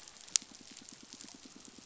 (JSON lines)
{"label": "biophony, pulse", "recorder": "SoundTrap 500"}